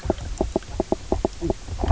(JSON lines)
{"label": "biophony, knock croak", "recorder": "SoundTrap 300"}